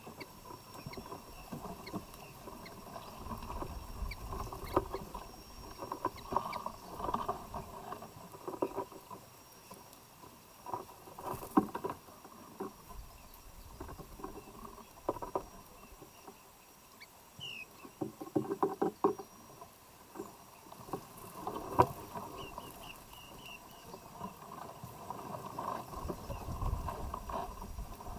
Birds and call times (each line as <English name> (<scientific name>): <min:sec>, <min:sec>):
Kikuyu White-eye (Zosterops kikuyuensis): 0:17.4, 0:23.1